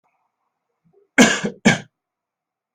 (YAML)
expert_labels:
- quality: ok
  cough_type: dry
  dyspnea: false
  wheezing: false
  stridor: false
  choking: false
  congestion: false
  nothing: true
  diagnosis: lower respiratory tract infection
  severity: mild